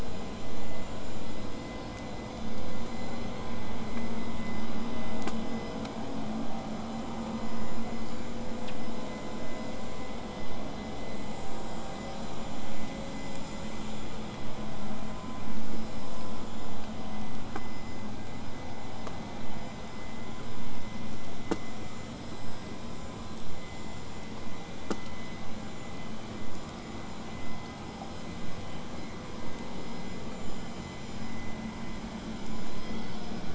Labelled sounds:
3.1	3.6	killer whale, southern resident, 3.0 to 7.8 kHz
32.7	33.3	killer whale, 1.8 to 4.7 kHz

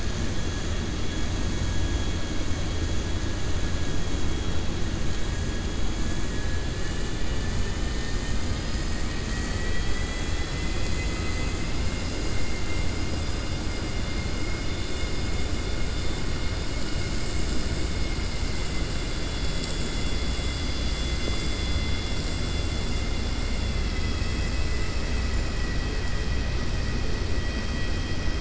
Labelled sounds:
12.2	12.8	vessel noise, 1.4 to 2.9 kHz

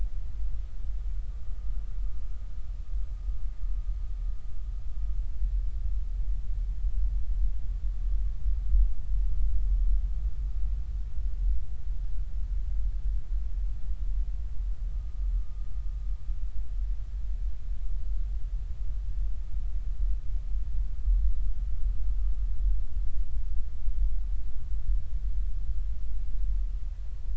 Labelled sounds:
14.9	15.2	humpback whale, 1.15 to 1.25 kHz

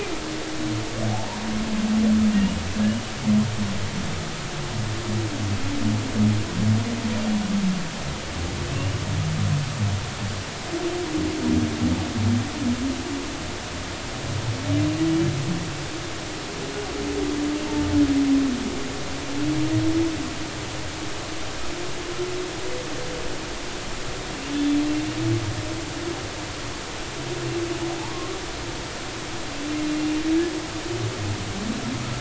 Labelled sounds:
2.3	2.6	humpback whale, 2.7 to 2.9 kHz
8.7	9.0	humpback whale, 2.7 to 2.9 kHz
24.5	24.8	humpback whale, 3.4 to 3.5 kHz

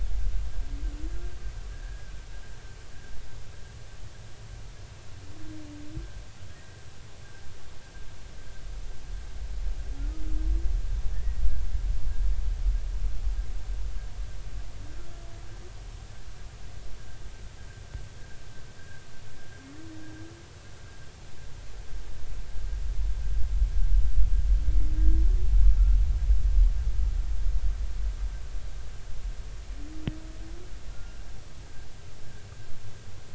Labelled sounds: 1.7	2.1	humpback whale, 1.5 to 1.8 kHz
6.5	6.8	humpback whale, 1.8 to 2.0 kHz
11.1	11.4	humpback whale, 1.7 to 2.0 kHz
30.9	31.2	humpback whale, 1.3 to 1.5 kHz

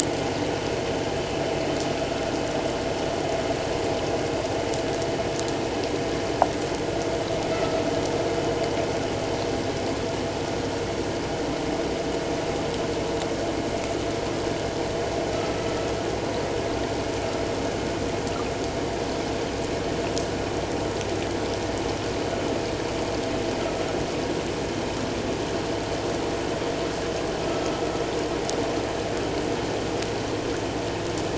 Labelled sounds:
7.5	7.8	vessel noise, 1.2 to 1.4 kHz
15.3	15.7	vessel noise, 1.2 to 1.4 kHz

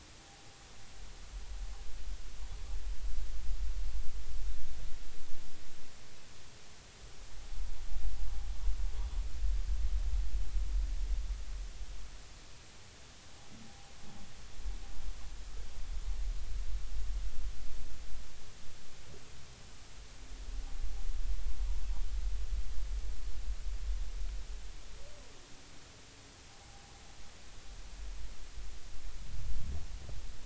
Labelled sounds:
0.2	0.6	humpback whale, 0.80 to 0.86 kHz
13.7	13.9	humpback whale, 0.80 to 0.86 kHz
26.5	27.0	humpback whale, 0.80 to 0.86 kHz

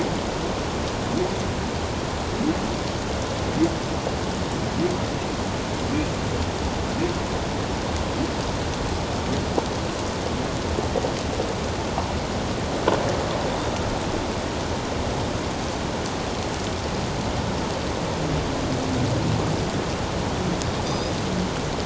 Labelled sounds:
20.8	21.1	Pacific white-sided dolphin, 3.5 to 5.2 kHz

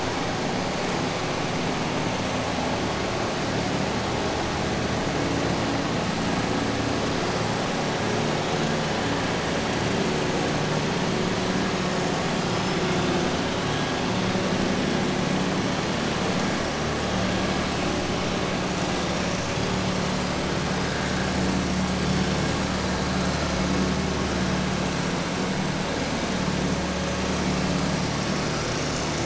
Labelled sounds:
12.4	12.8	killer whale, southern resident, 4.9 to 6.2 kHz

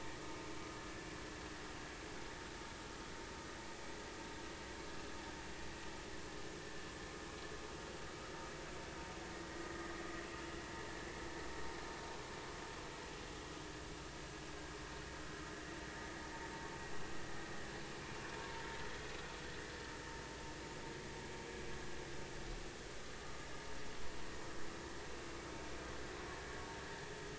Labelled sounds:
9.7	9.9	vessel noise, 1.8 to 2.0 kHz

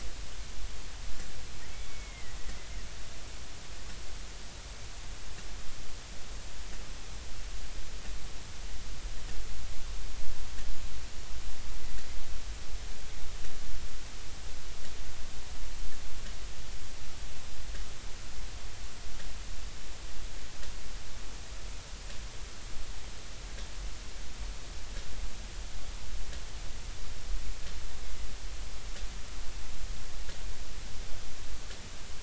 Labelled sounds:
1.6	2.4	killer whale, Bigg's (transient), 1.8 to 2.3 kHz

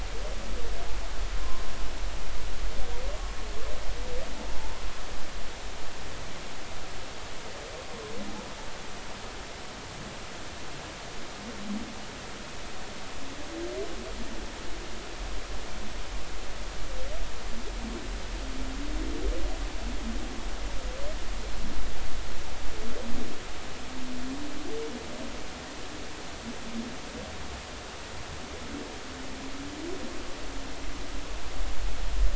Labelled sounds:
1.4	1.7	humpback whale, 0.99 to 1.1 kHz

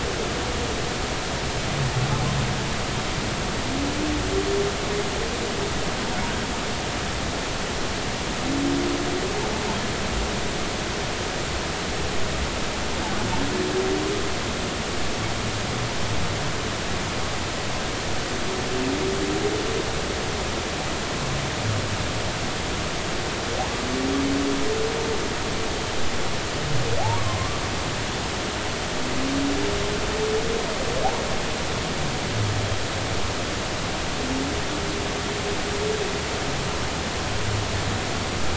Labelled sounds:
27.2	27.6	humpback whale, 0.99 to 1.2 kHz

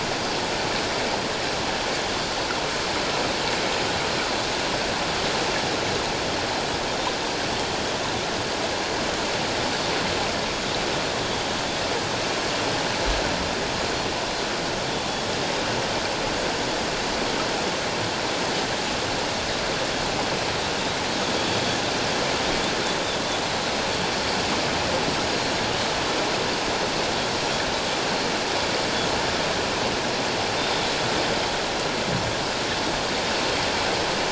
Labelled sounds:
21.4	21.6	Pacific white-sided dolphin, 3.3 to 3.4 kHz
30.6	30.9	Pacific white-sided dolphin, 3.5 to 3.7 kHz

